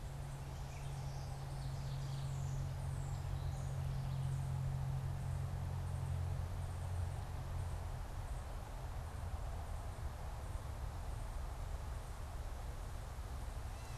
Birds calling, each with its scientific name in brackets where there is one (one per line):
Ovenbird (Seiurus aurocapilla)